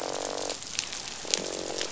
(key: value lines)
label: biophony, croak
recorder: SoundTrap 500